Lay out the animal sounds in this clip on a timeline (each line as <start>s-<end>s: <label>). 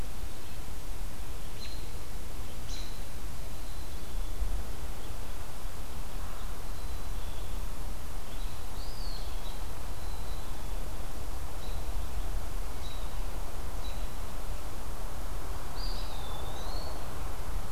1.5s-1.7s: American Robin (Turdus migratorius)
2.6s-2.9s: American Robin (Turdus migratorius)
3.3s-4.6s: Black-capped Chickadee (Poecile atricapillus)
6.5s-7.8s: Black-capped Chickadee (Poecile atricapillus)
8.2s-14.1s: American Robin (Turdus migratorius)
8.8s-9.7s: Eastern Wood-Pewee (Contopus virens)
9.9s-10.8s: Black-capped Chickadee (Poecile atricapillus)
15.5s-16.9s: Eastern Wood-Pewee (Contopus virens)